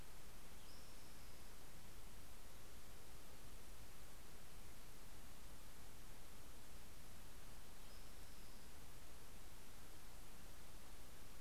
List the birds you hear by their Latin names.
Pipilo maculatus